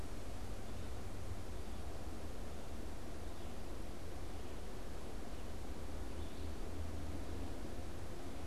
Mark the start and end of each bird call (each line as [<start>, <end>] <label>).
[6.11, 6.71] unidentified bird